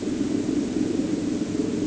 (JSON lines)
{"label": "anthrophony, boat engine", "recorder": "HydroMoth"}